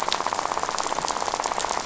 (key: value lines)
label: biophony, rattle
recorder: SoundTrap 500